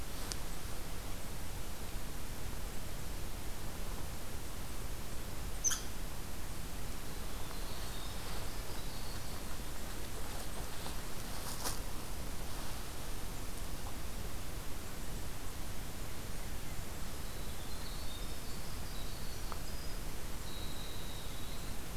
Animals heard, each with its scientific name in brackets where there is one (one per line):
Winter Wren (Troglodytes hiemalis)